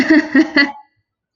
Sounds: Laughter